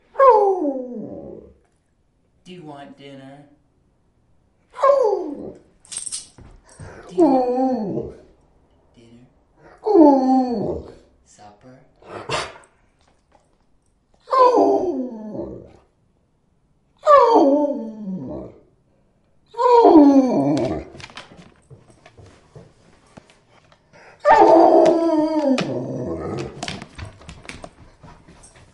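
A wolf is howling. 0.1 - 1.7
A person is speaking. 2.4 - 3.5
A wolf is howling. 4.7 - 5.8
A dog collar is rattling. 5.9 - 6.3
A wolf is howling. 7.1 - 8.4
A person is speaking. 8.9 - 9.4
A wolf is howling. 9.8 - 11.1
A person is speaking. 11.3 - 12.0
A dog sneezes. 12.1 - 12.6
A wolf is howling. 14.2 - 15.9
A wolf is howling. 17.0 - 18.7
A wolf is howling. 19.5 - 21.0
Dog footsteps. 21.0 - 23.1
A wolf is howling. 24.2 - 26.6
Dog footsteps. 26.6 - 28.7

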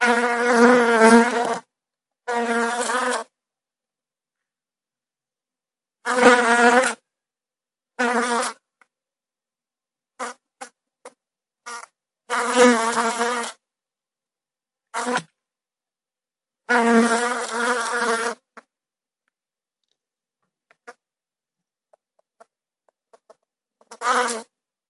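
A bee is buzzing. 0.0 - 1.6
A bee is buzzing. 2.2 - 3.3
A bee is buzzing. 6.0 - 7.0
A bee is buzzing. 8.0 - 8.5
A bee is buzzing. 11.6 - 13.5
A bee is buzzing. 14.9 - 15.2
A bee is buzzing. 16.7 - 18.3
A bee is buzzing. 23.9 - 24.4

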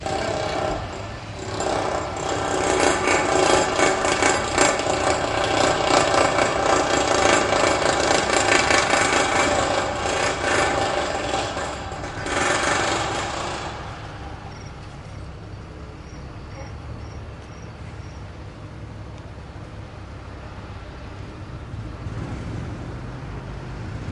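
A hammer drill is drilling into concrete. 0.0 - 14.4

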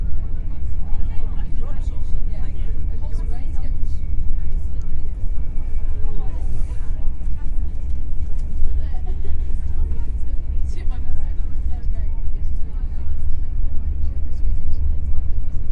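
A steady, muffled hum and rhythmic clatter from a moving train softly echo indoors. 0.0 - 15.7
Multiple people are talking quietly in the background. 0.0 - 15.7

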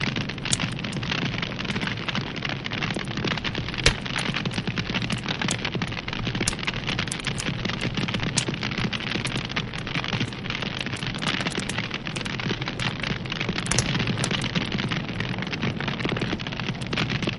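Fire crackles continuously as it burns wood nearby. 0.0 - 17.4

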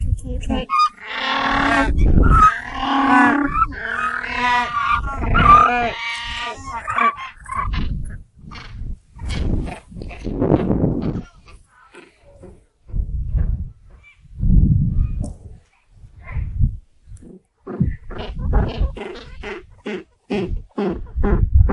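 A woman is speaking. 0.1 - 0.7
Birds cry unusually and irregularly. 0.7 - 11.3
The wind blows irregularly. 12.8 - 15.4
The wind blows irregularly. 16.1 - 21.7

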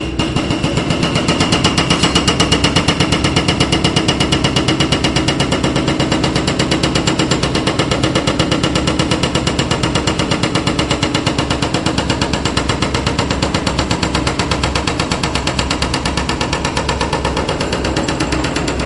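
A jackhammer operates continuously with a consistent pattern. 0.0 - 18.8

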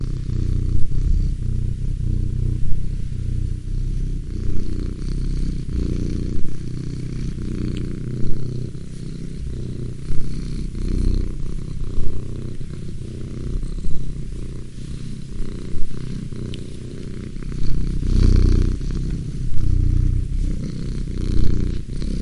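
A cat is purring. 0.0 - 22.2

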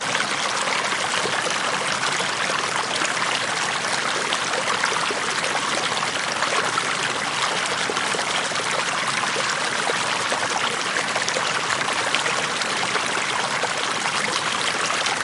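Calm water flowing in a stream. 0.0 - 15.2

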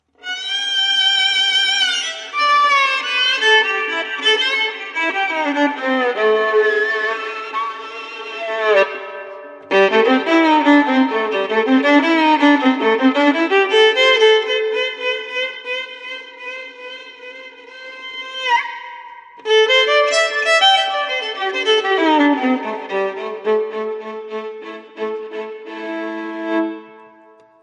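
A violin plays blues music. 0.1 - 27.5

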